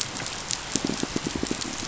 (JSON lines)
{"label": "biophony, pulse", "recorder": "SoundTrap 500"}